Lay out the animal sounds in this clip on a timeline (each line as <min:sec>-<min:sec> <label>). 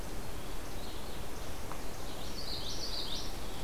0:00.0-0:02.3 Least Flycatcher (Empidonax minimus)
0:00.0-0:02.5 Red-eyed Vireo (Vireo olivaceus)
0:02.0-0:03.4 Common Yellowthroat (Geothlypis trichas)